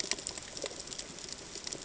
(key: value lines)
label: ambient
recorder: HydroMoth